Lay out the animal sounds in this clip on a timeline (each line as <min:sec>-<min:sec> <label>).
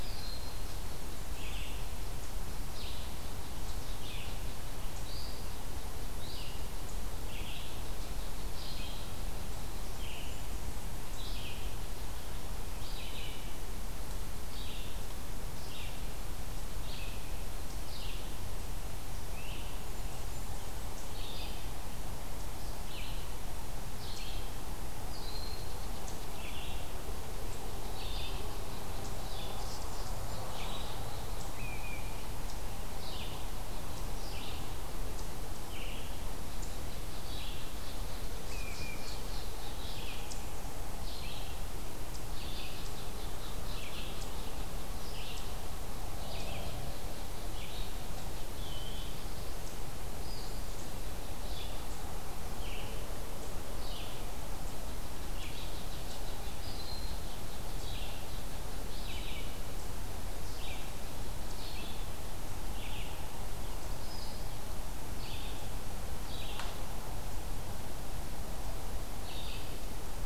0:00.0-0:00.7 Broad-winged Hawk (Buteo platypterus)
0:00.0-0:09.9 unknown mammal
0:00.0-0:11.8 Red-eyed Vireo (Vireo olivaceus)
0:09.7-0:11.0 Blackburnian Warbler (Setophaga fusca)
0:12.6-1:09.7 Red-eyed Vireo (Vireo olivaceus)
0:19.2-0:19.7 Great Crested Flycatcher (Myiarchus crinitus)
0:19.7-0:20.9 Blackburnian Warbler (Setophaga fusca)
0:25.3-0:26.6 unknown mammal
0:27.6-0:31.8 unknown mammal
0:29.3-0:30.9 Blackburnian Warbler (Setophaga fusca)
0:31.4-0:32.3 unidentified call
0:36.4-0:40.3 unknown mammal
0:42.4-0:49.6 unknown mammal
0:48.4-0:49.3 Eastern Wood-Pewee (Contopus virens)
0:55.4-0:59.4 unknown mammal
0:56.4-0:57.2 Broad-winged Hawk (Buteo platypterus)